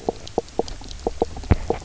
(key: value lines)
label: biophony, knock croak
recorder: SoundTrap 300